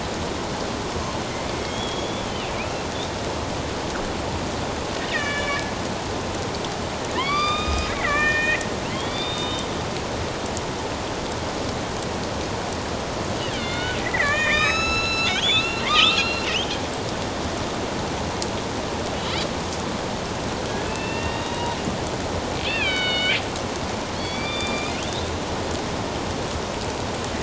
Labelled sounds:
1.6	2.9	killer whale, northern resident, A clan, AB subclan, 2.2 to 3.5 kHz
5.0	5.6	killer whale, northern resident, A clan, AB subclan, 1.1 to 3.8 kHz
7.1	9.7	killer whale, northern resident, A clan, AB subclan, 0.94 to 5.0 kHz
13.5	16.8	killer whale, northern resident, A clan, AB subclan, 0.91 to 8.0 kHz
20.9	21.8	killer whale, northern resident, A clan, AB subclan, 0.91 to 3.9 kHz
22.6	23.4	killer whale, northern resident, A clan, AB subclan, 1.4 to 5.0 kHz
24.1	24.9	killer whale, northern resident, A clan, AB subclan, 2.2 to 4.8 kHz

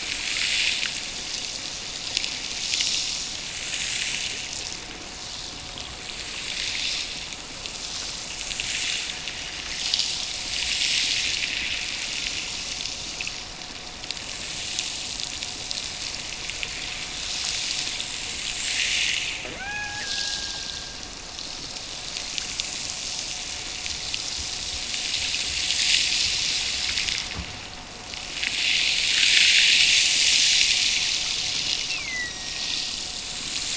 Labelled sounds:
19.5	21.1	killer whale, Bigg's (transient), Gulf of Alaska transient, 0.50 to 2.7 kHz
31.6	33.0	killer whale, Bigg's (transient), Gulf of Alaska transient, 1.7 to 2.9 kHz

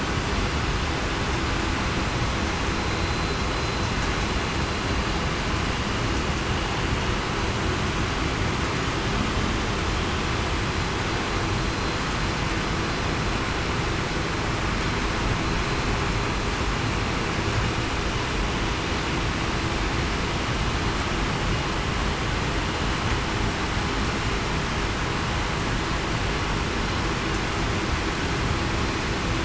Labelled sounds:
3.0	3.4	vessel noise, 4.0 to 4.1 kHz

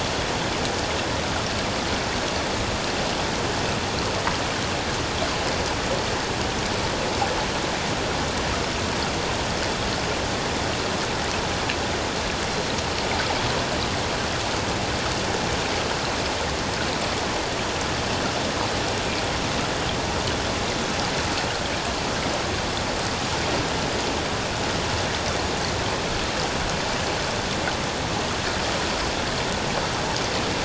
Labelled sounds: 12.5	12.8	killer whale, 4.1 to 4.2 kHz

